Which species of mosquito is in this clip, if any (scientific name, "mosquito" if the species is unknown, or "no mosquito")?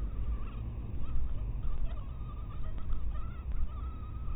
mosquito